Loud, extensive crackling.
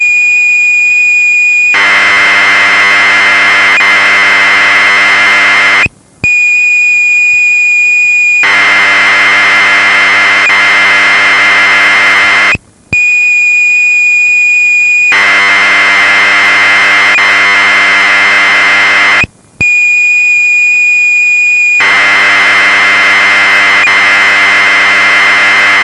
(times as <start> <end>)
1.7 6.0, 8.5 12.6, 15.1 19.3, 21.7 25.8